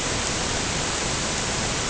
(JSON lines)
{"label": "ambient", "recorder": "HydroMoth"}